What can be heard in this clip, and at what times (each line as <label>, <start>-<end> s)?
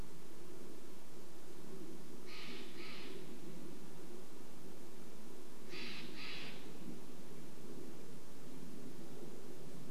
airplane, 0-10 s
Steller's Jay call, 2-8 s